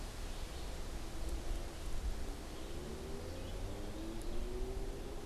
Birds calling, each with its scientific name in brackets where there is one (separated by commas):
Red-eyed Vireo (Vireo olivaceus)